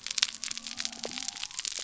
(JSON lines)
{"label": "biophony", "recorder": "SoundTrap 300"}